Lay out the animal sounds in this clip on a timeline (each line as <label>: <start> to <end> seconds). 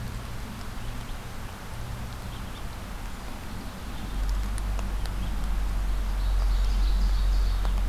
Ovenbird (Seiurus aurocapilla): 5.9 to 7.9 seconds